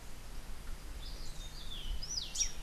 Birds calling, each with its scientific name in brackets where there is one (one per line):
Rufous-breasted Wren (Pheugopedius rutilus)